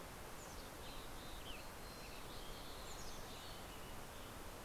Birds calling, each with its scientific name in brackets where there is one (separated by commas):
Mountain Chickadee (Poecile gambeli), Western Tanager (Piranga ludoviciana)